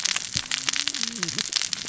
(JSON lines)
{"label": "biophony, cascading saw", "recorder": "SoundTrap 600 or HydroMoth"}